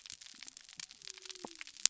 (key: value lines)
label: biophony
recorder: SoundTrap 300